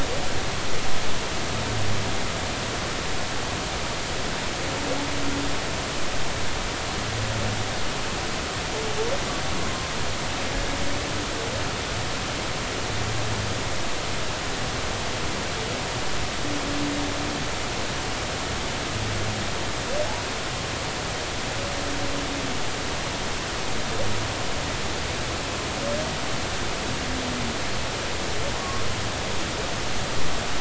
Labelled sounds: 9.6	9.9	humpback whale, 1.0 to 1.1 kHz
28.6	28.8	humpback whale, 0.96 to 1.2 kHz

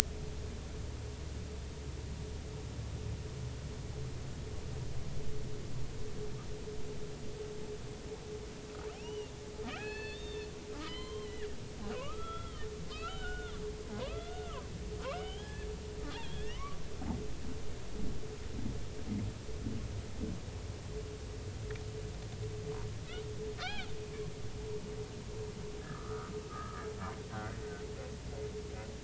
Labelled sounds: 8.9	10.5	humpback whale, 0.80 to 4.6 kHz
10.8	14.6	humpback whale, 0.93 to 4.2 kHz
15.0	15.7	humpback whale, 0.80 to 3.5 kHz
16.1	16.8	humpback whale, 0.96 to 3.6 kHz
23.6	23.9	humpback whale, 1.3 to 3.4 kHz
25.9	26.8	humpback whale, 1.1 to 1.5 kHz
27.3	27.6	humpback whale, 1.3 to 1.6 kHz

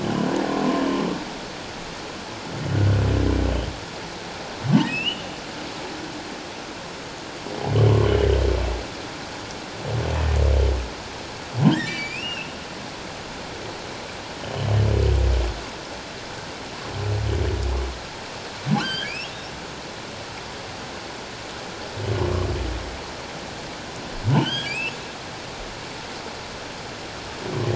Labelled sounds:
0.0	0.9	humpback whale, 0.97 to 3.1 kHz
2.7	3.0	humpback whale, 1.4 to 1.6 kHz
4.9	5.2	humpback whale, 2.4 to 3.1 kHz
11.7	12.5	humpback whale, 1.5 to 5.2 kHz
18.8	19.4	humpback whale, 1.3 to 3.4 kHz
24.3	25.0	humpback whale, 1.4 to 3.5 kHz

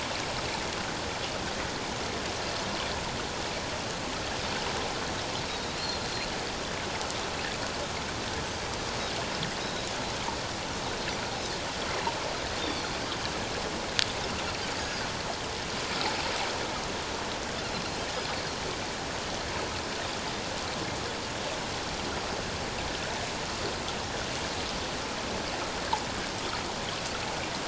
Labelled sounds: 5.8	6.0	Pacific white-sided dolphin, 4.1 to 4.4 kHz
9.6	9.9	Pacific white-sided dolphin, 3.7 to 4.1 kHz
12.6	12.8	Pacific white-sided dolphin, 3.4 to 3.7 kHz
14.8	15.1	Pacific white-sided dolphin, 4.7 to 5.0 kHz
18.3	18.6	Pacific white-sided dolphin, 4.2 to 4.5 kHz

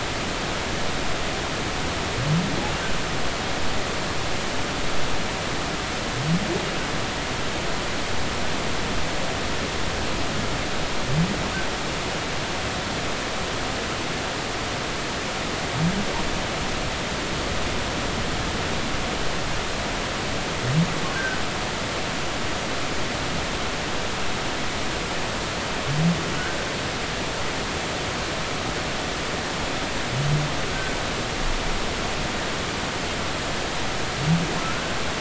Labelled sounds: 21.1	21.4	humpback whale, 1.4 to 1.6 kHz

